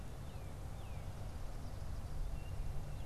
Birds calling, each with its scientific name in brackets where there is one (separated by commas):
Northern Cardinal (Cardinalis cardinalis)